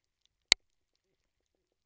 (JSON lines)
{"label": "biophony, knock croak", "recorder": "SoundTrap 300"}